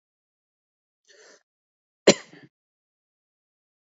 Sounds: Laughter